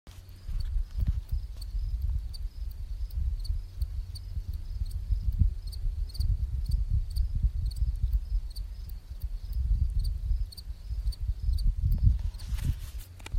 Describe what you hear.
Gryllus pennsylvanicus, an orthopteran